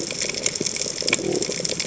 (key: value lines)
label: biophony
recorder: HydroMoth